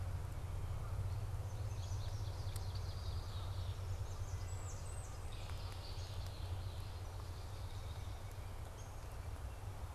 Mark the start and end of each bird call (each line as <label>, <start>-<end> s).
American Goldfinch (Spinus tristis), 1.2-3.6 s
Red-winged Blackbird (Agelaius phoeniceus), 2.2-3.8 s
Blackburnian Warbler (Setophaga fusca), 3.9-5.4 s
Red-winged Blackbird (Agelaius phoeniceus), 5.2-7.1 s
White-breasted Nuthatch (Sitta carolinensis), 7.3-9.1 s
Downy Woodpecker (Dryobates pubescens), 8.7-8.9 s